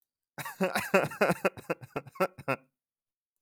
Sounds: Laughter